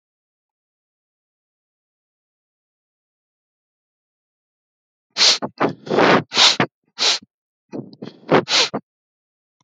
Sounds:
Sniff